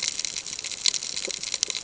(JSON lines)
{"label": "ambient", "recorder": "HydroMoth"}